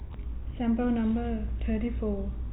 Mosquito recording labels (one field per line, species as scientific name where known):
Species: no mosquito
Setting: cup